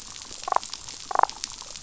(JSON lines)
{"label": "biophony, damselfish", "recorder": "SoundTrap 500"}